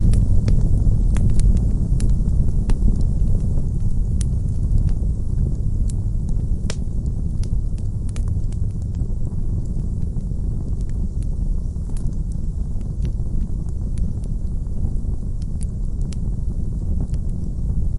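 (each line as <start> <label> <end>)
0.0 A fire is rumbling from a short distance. 18.0
0.0 Wood crackles quietly and repeatedly nearby. 2.9
6.7 Burning wood crackles quietly nearby. 6.8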